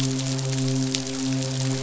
{"label": "biophony, midshipman", "recorder": "SoundTrap 500"}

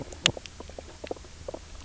{"label": "biophony, knock croak", "recorder": "SoundTrap 300"}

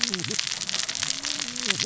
{"label": "biophony, cascading saw", "recorder": "SoundTrap 600 or HydroMoth"}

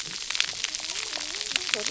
{"label": "biophony, cascading saw", "recorder": "SoundTrap 300"}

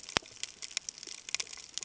{"label": "ambient", "recorder": "HydroMoth"}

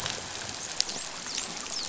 {"label": "biophony, dolphin", "recorder": "SoundTrap 500"}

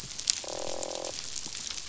{"label": "biophony, croak", "recorder": "SoundTrap 500"}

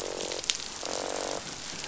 {"label": "biophony, croak", "recorder": "SoundTrap 500"}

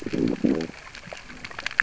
{"label": "biophony, growl", "recorder": "SoundTrap 600 or HydroMoth"}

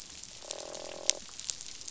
{"label": "biophony, croak", "recorder": "SoundTrap 500"}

